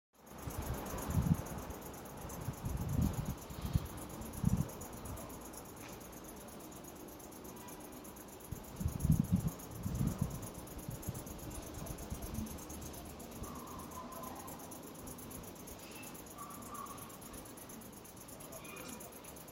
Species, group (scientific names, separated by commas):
Tettigonia viridissima, Orthoptera